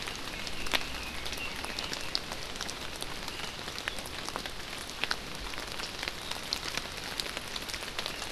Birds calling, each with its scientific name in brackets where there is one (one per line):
Red-billed Leiothrix (Leiothrix lutea)